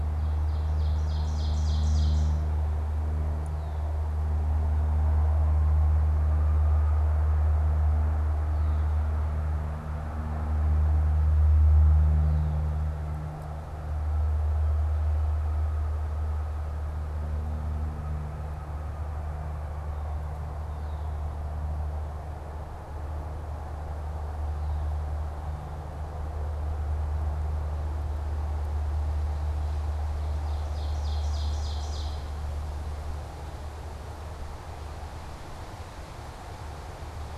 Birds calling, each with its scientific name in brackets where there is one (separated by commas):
Red-winged Blackbird (Agelaius phoeniceus), Ovenbird (Seiurus aurocapilla)